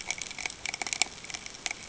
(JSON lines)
{"label": "ambient", "recorder": "HydroMoth"}